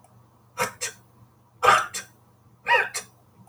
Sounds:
Sniff